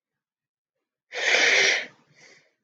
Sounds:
Sniff